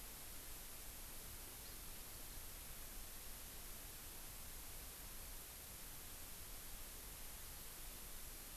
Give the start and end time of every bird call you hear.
[1.65, 1.75] Hawaii Amakihi (Chlorodrepanis virens)

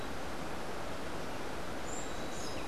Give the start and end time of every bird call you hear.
[1.76, 2.66] Buff-throated Saltator (Saltator maximus)

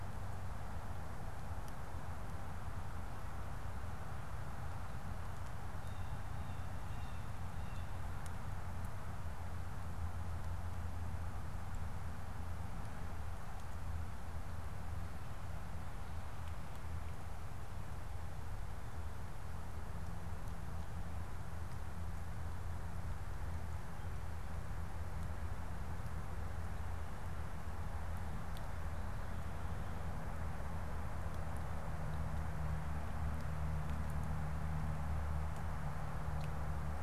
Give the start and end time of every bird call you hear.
[5.72, 8.12] Blue Jay (Cyanocitta cristata)

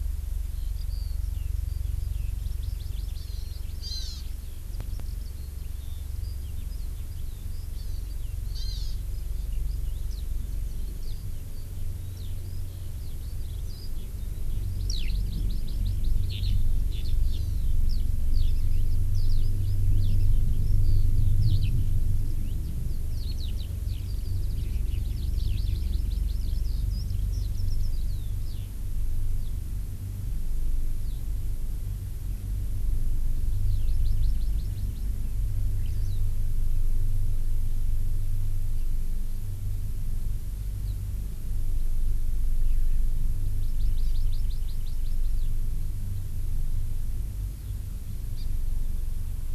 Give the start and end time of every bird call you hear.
[0.45, 28.75] Eurasian Skylark (Alauda arvensis)
[2.45, 4.25] Hawaii Amakihi (Chlorodrepanis virens)
[8.55, 8.95] Hawaii Amakihi (Chlorodrepanis virens)
[14.75, 16.15] Hawaii Amakihi (Chlorodrepanis virens)
[17.25, 17.65] Hawaii Amakihi (Chlorodrepanis virens)
[25.05, 26.65] Hawaii Amakihi (Chlorodrepanis virens)
[33.65, 35.05] Hawaii Amakihi (Chlorodrepanis virens)
[35.75, 36.15] Eurasian Skylark (Alauda arvensis)
[43.45, 45.35] Hawaii Amakihi (Chlorodrepanis virens)
[48.35, 48.45] Hawaii Amakihi (Chlorodrepanis virens)

